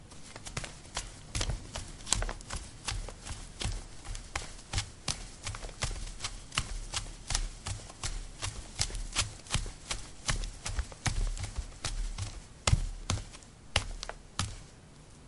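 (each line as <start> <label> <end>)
0.0 Footsteps thumping in a steady, muffled rhythm. 15.3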